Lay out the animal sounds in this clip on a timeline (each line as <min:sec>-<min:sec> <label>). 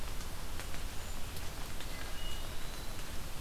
0:00.8-0:01.2 Cedar Waxwing (Bombycilla cedrorum)
0:01.8-0:02.4 Wood Thrush (Hylocichla mustelina)
0:02.4-0:03.1 Eastern Wood-Pewee (Contopus virens)